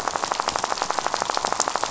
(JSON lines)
{"label": "biophony, rattle", "recorder": "SoundTrap 500"}